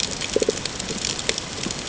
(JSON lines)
{"label": "ambient", "recorder": "HydroMoth"}